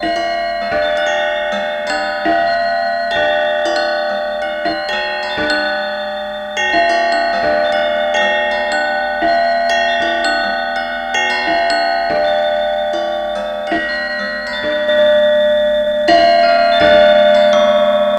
is something moving?
yes